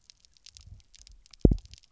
{"label": "biophony, double pulse", "recorder": "SoundTrap 300"}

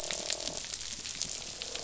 {"label": "biophony, croak", "recorder": "SoundTrap 500"}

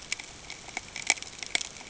{"label": "ambient", "recorder": "HydroMoth"}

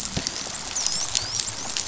{"label": "biophony, dolphin", "recorder": "SoundTrap 500"}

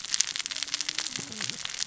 {"label": "biophony, cascading saw", "recorder": "SoundTrap 600 or HydroMoth"}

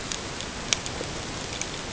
{"label": "ambient", "recorder": "HydroMoth"}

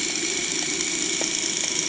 {"label": "anthrophony, boat engine", "recorder": "HydroMoth"}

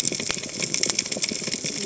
{"label": "biophony, cascading saw", "recorder": "HydroMoth"}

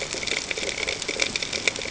{"label": "ambient", "recorder": "HydroMoth"}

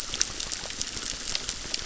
{"label": "biophony, crackle", "recorder": "SoundTrap 600"}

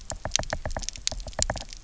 {"label": "biophony, knock", "recorder": "SoundTrap 300"}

